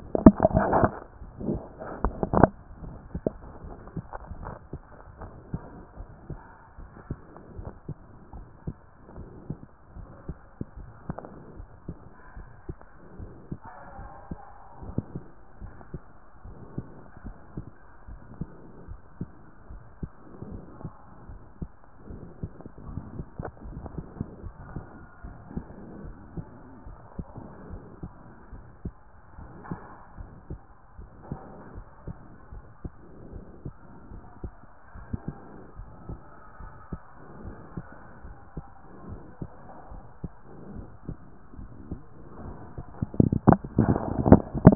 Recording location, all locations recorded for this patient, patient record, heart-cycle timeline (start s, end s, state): pulmonary valve (PV)
pulmonary valve (PV)+tricuspid valve (TV)
#Age: nan
#Sex: Female
#Height: nan
#Weight: nan
#Pregnancy status: True
#Murmur: Absent
#Murmur locations: nan
#Most audible location: nan
#Systolic murmur timing: nan
#Systolic murmur shape: nan
#Systolic murmur grading: nan
#Systolic murmur pitch: nan
#Systolic murmur quality: nan
#Diastolic murmur timing: nan
#Diastolic murmur shape: nan
#Diastolic murmur grading: nan
#Diastolic murmur pitch: nan
#Diastolic murmur quality: nan
#Outcome: Normal
#Campaign: 2014 screening campaign
0.00	5.20	unannotated
5.20	5.32	S1
5.32	5.52	systole
5.52	5.62	S2
5.62	5.98	diastole
5.98	6.08	S1
6.08	6.28	systole
6.28	6.40	S2
6.40	6.78	diastole
6.78	6.90	S1
6.90	7.08	systole
7.08	7.18	S2
7.18	7.58	diastole
7.58	7.70	S1
7.70	7.88	systole
7.88	7.96	S2
7.96	8.34	diastole
8.34	8.46	S1
8.46	8.66	systole
8.66	8.76	S2
8.76	9.16	diastole
9.16	9.28	S1
9.28	9.48	systole
9.48	9.58	S2
9.58	9.96	diastole
9.96	10.08	S1
10.08	10.28	systole
10.28	10.36	S2
10.36	10.78	diastole
10.78	10.90	S1
10.90	11.08	systole
11.08	11.18	S2
11.18	11.56	diastole
11.56	11.68	S1
11.68	11.86	systole
11.86	11.96	S2
11.96	12.36	diastole
12.36	12.48	S1
12.48	12.68	systole
12.68	12.76	S2
12.76	13.18	diastole
13.18	13.30	S1
13.30	13.50	systole
13.50	13.60	S2
13.60	13.98	diastole
13.98	14.10	S1
14.10	14.30	systole
14.30	14.38	S2
14.38	14.86	diastole
14.86	14.96	S1
14.96	15.14	systole
15.14	15.24	S2
15.24	15.62	diastole
15.62	15.72	S1
15.72	15.92	systole
15.92	16.02	S2
16.02	16.46	diastole
16.46	16.58	S1
16.58	16.76	systole
16.76	16.86	S2
16.86	17.24	diastole
17.24	17.36	S1
17.36	17.56	systole
17.56	17.66	S2
17.66	18.08	diastole
18.08	18.20	S1
18.20	18.40	systole
18.40	18.48	S2
18.48	18.88	diastole
18.88	18.98	S1
18.98	19.20	systole
19.20	19.30	S2
19.30	19.70	diastole
19.70	19.82	S1
19.82	20.00	systole
20.00	20.10	S2
20.10	20.50	diastole
20.50	20.62	S1
20.62	20.82	systole
20.82	20.92	S2
20.92	21.28	diastole
21.28	21.40	S1
21.40	21.60	systole
21.60	21.70	S2
21.70	22.10	diastole
22.10	22.22	S1
22.22	22.42	systole
22.42	22.50	S2
22.50	22.88	diastole
22.88	23.02	S1
23.02	23.16	systole
23.16	23.26	S2
23.26	23.68	diastole
23.68	23.80	S1
23.80	23.96	systole
23.96	24.06	S2
24.06	24.44	diastole
24.44	24.54	S1
24.54	24.74	systole
24.74	24.84	S2
24.84	25.24	diastole
25.24	25.36	S1
25.36	25.54	systole
25.54	25.64	S2
25.64	26.04	diastole
26.04	26.14	S1
26.14	26.36	systole
26.36	26.46	S2
26.46	26.86	diastole
26.86	26.98	S1
26.98	27.18	systole
27.18	27.26	S2
27.26	27.70	diastole
27.70	27.82	S1
27.82	28.02	systole
28.02	28.12	S2
28.12	28.54	diastole
28.54	28.64	S1
28.64	28.84	systole
28.84	28.94	S2
28.94	29.38	diastole
29.38	29.52	S1
29.52	29.70	systole
29.70	29.78	S2
29.78	30.18	diastole
30.18	30.30	S1
30.30	30.50	systole
30.50	30.60	S2
30.60	30.98	diastole
30.98	31.10	S1
31.10	31.30	systole
31.30	31.38	S2
31.38	31.74	diastole
31.74	31.86	S1
31.86	32.06	systole
32.06	32.16	S2
32.16	32.52	diastole
32.52	32.64	S1
32.64	32.84	systole
32.84	32.92	S2
32.92	33.32	diastole
33.32	33.44	S1
33.44	33.64	systole
33.64	33.74	S2
33.74	34.12	diastole
34.12	34.24	S1
34.24	34.42	systole
34.42	34.52	S2
34.52	34.96	diastole
34.96	35.06	S1
35.06	35.26	systole
35.26	35.36	S2
35.36	35.78	diastole
35.78	35.90	S1
35.90	36.08	systole
36.08	36.18	S2
36.18	36.60	diastole
36.60	36.72	S1
36.72	36.92	systole
36.92	37.00	S2
37.00	37.44	diastole
37.44	37.56	S1
37.56	37.76	systole
37.76	37.86	S2
37.86	38.24	diastole
38.24	38.36	S1
38.36	38.56	systole
38.56	38.64	S2
38.64	39.08	diastole
39.08	39.20	S1
39.20	39.40	systole
39.40	39.50	S2
39.50	39.92	diastole
39.92	40.04	S1
40.04	40.22	systole
40.22	40.32	S2
40.32	40.74	diastole
40.74	40.86	S1
40.86	41.06	systole
41.06	41.16	S2
41.16	41.60	diastole
41.60	41.70	S1
41.70	41.90	systole
41.90	42.00	S2
42.00	42.42	diastole
42.42	42.56	S1
42.56	42.76	systole
42.76	42.86	S2
42.86	43.22	diastole
43.22	44.75	unannotated